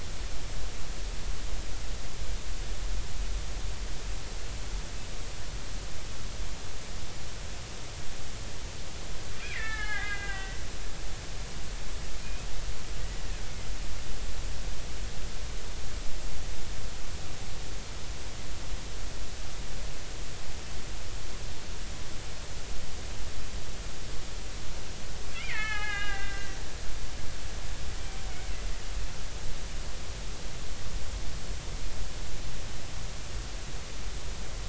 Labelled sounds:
9.3	10.6	killer whale, Bigg's (transient), 0.80 to 3.6 kHz
12.2	12.5	killer whale, Bigg's (transient), 2.4 to 2.6 kHz
25.3	26.6	killer whale, Bigg's (transient), 0.80 to 4.5 kHz

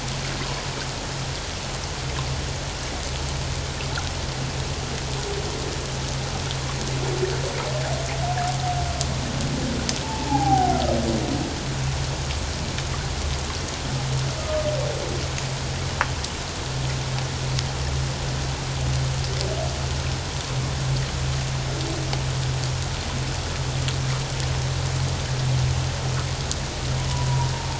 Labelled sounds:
10.0	10.8	humpback whale, 0.78 to 0.94 kHz

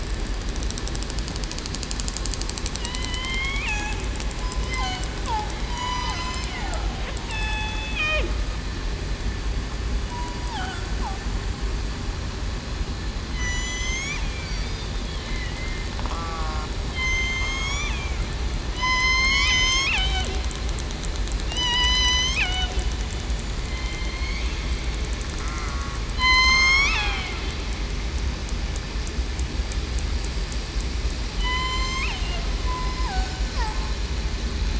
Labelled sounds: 2.8	3.7	killer whale, southern resident, 0.94 to 3.5 kHz
5.7	6.1	killer whale, southern resident, 0.94 to 3.0 kHz
7.3	8.2	killer whale, southern resident, 0.82 to 3.6 kHz
10.4	10.8	killer whale, southern resident, 0.68 to 0.98 kHz
13.3	14.5	killer whale, southern resident, 1.9 to 8.0 kHz
15.3	15.8	killer whale, southern resident, 1.9 to 2.2 kHz
16.1	16.7	killer whale, southern resident, 0.75 to 1.4 kHz
16.9	17.9	killer whale, southern resident, 2.0 to 7.4 kHz
18.7	19.3	killer whale, southern resident, 3.9 to 4.3 kHz
21.5	22.8	killer whale, southern resident, 0.70 to 6.5 kHz
23.6	24.4	killer whale, southern resident, 2.0 to 3.2 kHz
25.4	25.8	killer whale, southern resident, 1.2 to 1.4 kHz
26.1	27.3	killer whale, southern resident, 0.70 to 6.9 kHz
31.4	32.1	killer whale, southern resident, 0.94 to 8.0 kHz
33.1	33.4	killer whale, southern resident, 1.5 to 1.7 kHz

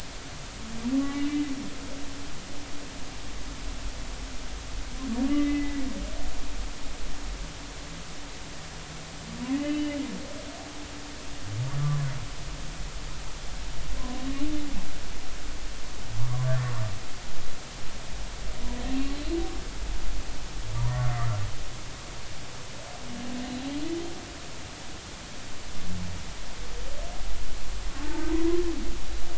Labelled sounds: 1.0	1.4	humpback whale, 1.9 to 3.0 kHz
5.3	5.8	humpback whale, 1.9 to 2.1 kHz
9.5	10.0	humpback whale, 1.9 to 3.0 kHz
16.3	16.7	humpback whale, 0.99 to 1.9 kHz
20.7	21.4	humpback whale, 0.90 to 1.4 kHz
28.0	28.2	humpback whale, 0.80 to 0.96 kHz

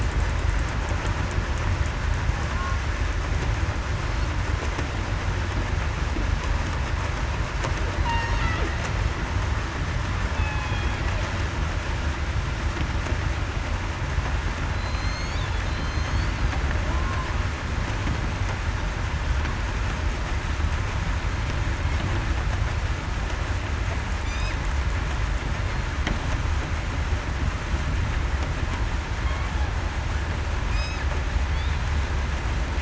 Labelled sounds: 8.1	8.4	killer whale, southern resident, 4.1 to 4.4 kHz
10.3	10.9	killer whale, southern resident, 0.82 to 2.6 kHz
14.7	15.4	killer whale, southern resident, 4.0 to 4.8 kHz
15.7	16.3	killer whale, southern resident, 4.0 to 6.4 kHz
16.9	17.3	killer whale, southern resident, 0.98 to 1.1 kHz

